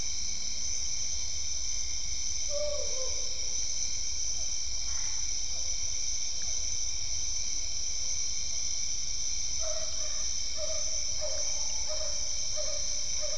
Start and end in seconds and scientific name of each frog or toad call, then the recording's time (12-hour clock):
4.2	6.7	Physalaemus cuvieri
4.8	5.4	Boana albopunctata
7:30pm